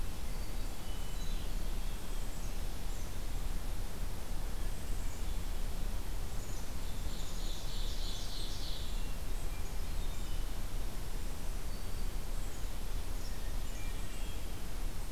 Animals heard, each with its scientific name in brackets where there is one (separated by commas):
Ovenbird (Seiurus aurocapilla), Black-capped Chickadee (Poecile atricapillus), Hermit Thrush (Catharus guttatus), Brown Creeper (Certhia americana)